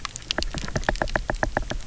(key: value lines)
label: biophony, knock
recorder: SoundTrap 300